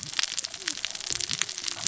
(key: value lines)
label: biophony, cascading saw
recorder: SoundTrap 600 or HydroMoth